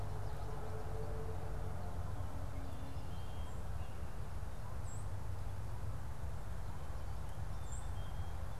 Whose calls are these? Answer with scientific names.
Zonotrichia albicollis, Poecile atricapillus